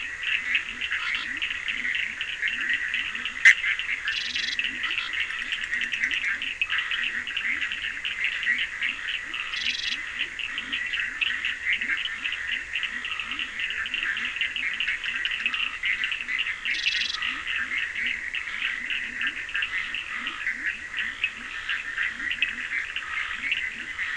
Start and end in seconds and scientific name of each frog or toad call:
0.0	24.1	Leptodactylus latrans
0.0	24.1	Sphaenorhynchus surdus
3.4	3.6	Boana bischoffi
4.0	4.6	Scinax perereca
9.3	10.3	Scinax perereca
16.7	17.4	Scinax perereca